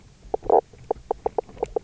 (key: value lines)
label: biophony, knock croak
recorder: SoundTrap 300